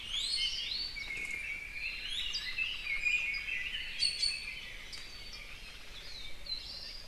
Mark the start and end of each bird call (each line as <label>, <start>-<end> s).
Iiwi (Drepanis coccinea), 0.0-1.1 s
Red-billed Leiothrix (Leiothrix lutea), 0.9-2.1 s
Iiwi (Drepanis coccinea), 2.0-2.4 s
Omao (Myadestes obscurus), 2.1-3.3 s
Red-billed Leiothrix (Leiothrix lutea), 2.5-4.2 s
Iiwi (Drepanis coccinea), 2.9-3.6 s
Iiwi (Drepanis coccinea), 3.9-4.7 s
Iiwi (Drepanis coccinea), 5.2-5.9 s
Hawaii Akepa (Loxops coccineus), 5.8-6.4 s
Apapane (Himatione sanguinea), 6.4-6.6 s